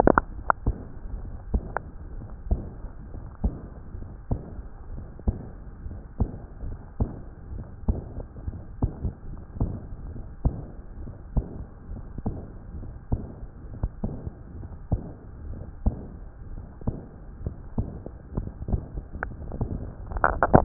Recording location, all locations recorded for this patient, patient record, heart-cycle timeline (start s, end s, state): tricuspid valve (TV)
aortic valve (AV)+pulmonary valve (PV)+tricuspid valve (TV)+mitral valve (MV)
#Age: Adolescent
#Sex: Male
#Height: 162.0 cm
#Weight: 47.4 kg
#Pregnancy status: False
#Murmur: Present
#Murmur locations: aortic valve (AV)+mitral valve (MV)+pulmonary valve (PV)+tricuspid valve (TV)
#Most audible location: mitral valve (MV)
#Systolic murmur timing: Early-systolic
#Systolic murmur shape: Decrescendo
#Systolic murmur grading: II/VI
#Systolic murmur pitch: Medium
#Systolic murmur quality: Harsh
#Diastolic murmur timing: Early-diastolic
#Diastolic murmur shape: Decrescendo
#Diastolic murmur grading: II/IV
#Diastolic murmur pitch: Medium
#Diastolic murmur quality: Blowing
#Outcome: Abnormal
#Campaign: 2014 screening campaign
0.00	0.26	S1
0.26	0.56	systole
0.56	0.76	S2
0.76	1.12	diastole
1.12	1.30	S1
1.30	1.52	systole
1.52	1.74	S2
1.74	2.14	diastole
2.14	2.22	S1
2.22	2.46	systole
2.46	2.70	S2
2.70	3.16	diastole
3.16	3.22	S1
3.22	3.42	systole
3.42	3.60	S2
3.60	4.00	diastole
4.00	4.06	S1
4.06	4.30	systole
4.30	4.44	S2
4.44	4.92	diastole
4.92	5.04	S1
5.04	5.24	systole
5.24	5.44	S2
5.44	5.90	diastole
5.90	6.00	S1
6.00	6.20	systole
6.20	6.32	S2
6.32	6.64	diastole
6.64	6.76	S1
6.76	7.00	systole
7.00	7.16	S2
7.16	7.52	diastole
7.52	7.64	S1
7.64	7.84	systole
7.84	8.06	S2
8.06	8.46	diastole
8.46	8.56	S1
8.56	8.80	systole
8.80	9.14	S2
9.14	9.60	diastole
9.60	9.80	S1
9.80	10.02	systole
10.02	10.14	S2
10.14	10.44	diastole
10.44	10.58	S1
10.58	10.70	systole
10.70	10.72	S2
10.72	11.02	diastole
11.02	11.08	S1
11.08	11.32	systole
11.32	11.48	S2
11.48	11.92	diastole
11.92	12.02	S1
12.02	12.24	systole
12.24	12.42	S2
12.42	12.76	diastole
12.76	12.88	S1
12.88	13.12	systole
13.12	13.30	S2
13.30	13.78	diastole
13.78	13.90	S1
13.90	14.02	systole
14.02	14.20	S2
14.20	14.58	diastole
14.58	14.64	S1
14.64	14.88	systole
14.88	15.04	S2
15.04	15.44	diastole
15.44	15.58	S1
15.58	15.82	systole
15.82	16.06	S2
16.06	16.52	diastole
16.52	16.62	S1
16.62	16.86	systole
16.86	17.02	S2
17.02	17.42	diastole
17.42	17.54	S1
17.54	17.76	systole
17.76	17.94	S2
17.94	18.34	diastole
18.34	18.48	S1
18.48	18.70	systole
18.70	18.86	S2
18.86	19.24	diastole
19.24	19.34	S1
19.34	19.60	systole
19.60	19.90	S2
19.90	20.14	diastole
20.14	20.40	S1
20.40	20.46	systole
20.46	20.64	S2